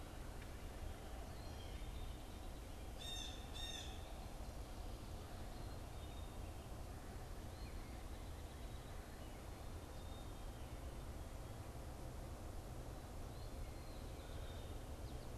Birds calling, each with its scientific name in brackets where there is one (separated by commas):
Blue Jay (Cyanocitta cristata)